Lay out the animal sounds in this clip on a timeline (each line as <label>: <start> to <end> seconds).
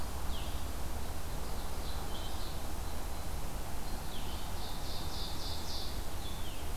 Blue-headed Vireo (Vireo solitarius): 0.2 to 0.7 seconds
Ovenbird (Seiurus aurocapilla): 1.2 to 2.7 seconds
Blue-headed Vireo (Vireo solitarius): 2.0 to 2.4 seconds
Blue-headed Vireo (Vireo solitarius): 3.8 to 4.4 seconds
Ovenbird (Seiurus aurocapilla): 4.2 to 6.1 seconds
Blue-headed Vireo (Vireo solitarius): 6.1 to 6.8 seconds